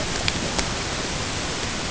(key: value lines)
label: ambient
recorder: HydroMoth